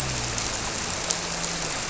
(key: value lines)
label: biophony
recorder: SoundTrap 300